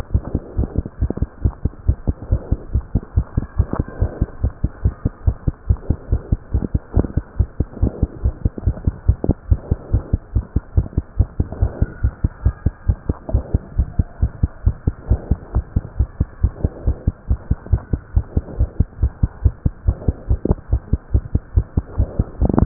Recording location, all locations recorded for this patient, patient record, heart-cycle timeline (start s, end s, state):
pulmonary valve (PV)
aortic valve (AV)+pulmonary valve (PV)+tricuspid valve (TV)+mitral valve (MV)
#Age: Child
#Sex: Female
#Height: 78.0 cm
#Weight: 10.3 kg
#Pregnancy status: False
#Murmur: Absent
#Murmur locations: nan
#Most audible location: nan
#Systolic murmur timing: nan
#Systolic murmur shape: nan
#Systolic murmur grading: nan
#Systolic murmur pitch: nan
#Systolic murmur quality: nan
#Diastolic murmur timing: nan
#Diastolic murmur shape: nan
#Diastolic murmur grading: nan
#Diastolic murmur pitch: nan
#Diastolic murmur quality: nan
#Outcome: Normal
#Campaign: 2015 screening campaign
0.00	8.10	unannotated
8.10	8.23	diastole
8.23	8.34	S1
8.34	8.44	systole
8.44	8.52	S2
8.52	8.66	diastole
8.66	8.76	S1
8.76	8.85	systole
8.85	8.94	S2
8.94	9.07	diastole
9.07	9.16	S1
9.16	9.28	systole
9.28	9.36	S2
9.36	9.50	diastole
9.50	9.62	S1
9.62	9.70	systole
9.70	9.78	S2
9.78	9.92	diastole
9.92	10.04	S1
10.04	10.11	systole
10.11	10.20	S2
10.20	10.34	diastole
10.34	10.44	S1
10.44	10.53	systole
10.53	10.64	S2
10.64	10.75	diastole
10.75	10.84	S1
10.84	10.96	systole
10.96	11.04	S2
11.04	11.18	diastole
11.18	11.28	S1
11.28	11.38	systole
11.38	11.48	S2
11.48	11.60	diastole
11.60	11.72	S1
11.72	11.80	systole
11.80	11.90	S2
11.90	12.02	diastole
12.02	12.14	S1
12.14	12.23	systole
12.23	12.30	S2
12.30	12.44	diastole
12.44	12.54	S1
12.54	12.64	systole
12.64	12.72	S2
12.72	12.88	diastole
12.88	12.98	S1
12.98	13.08	systole
13.08	13.16	S2
13.16	13.32	diastole
13.32	13.46	S1
13.46	13.52	systole
13.52	13.62	S2
13.62	13.76	diastole
13.76	13.88	S1
13.88	13.98	systole
13.98	14.08	S2
14.08	14.20	diastole
14.20	14.32	S1
14.32	14.41	systole
14.41	14.50	S2
14.50	14.66	diastole
14.66	14.76	S1
14.76	14.85	systole
14.85	14.94	S2
14.94	15.09	diastole
15.09	15.20	S1
15.20	15.29	systole
15.29	15.38	S2
15.38	15.54	diastole
15.54	15.66	S1
15.66	15.75	systole
15.75	15.83	S2
15.83	15.98	diastole
15.98	16.10	S1
16.10	16.18	systole
16.18	16.28	S2
16.28	16.42	diastole
16.42	16.52	S1
16.52	16.62	systole
16.62	16.72	S2
16.72	16.86	diastole
16.86	16.96	S1
16.96	17.06	systole
17.06	17.14	S2
17.14	17.28	diastole
17.28	17.37	S1
17.37	17.49	systole
17.49	17.58	S2
17.58	17.72	diastole
17.72	17.82	S1
17.82	17.91	systole
17.91	18.00	S2
18.00	18.13	diastole
18.13	18.24	S1
18.24	18.34	systole
18.34	18.44	S2
18.44	18.58	diastole
18.58	18.70	S1
18.70	18.78	systole
18.78	18.87	S2
18.87	19.00	diastole
19.00	19.12	S1
19.12	19.21	systole
19.21	19.30	S2
19.30	19.42	diastole
19.42	19.53	S1
19.53	19.63	systole
19.63	19.72	S2
19.72	19.86	diastole
19.86	19.96	S1
19.96	20.06	systole
20.06	20.16	S2
20.16	20.27	diastole
20.27	20.40	S1
20.40	20.48	systole
20.48	20.58	S2
20.58	20.69	diastole
20.69	20.82	S1
20.82	20.90	systole
20.90	21.00	S2
21.00	21.12	diastole
21.12	22.66	unannotated